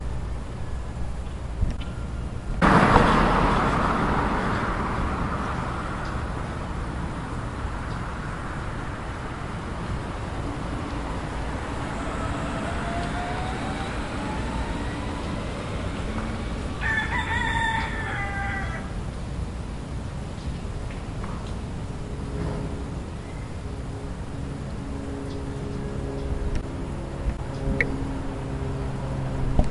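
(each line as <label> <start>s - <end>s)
A police car is driving away. 2.5s - 16.3s
A rooster crows loudly. 16.6s - 19.1s
An aircraft engine fades in and out. 18.8s - 29.7s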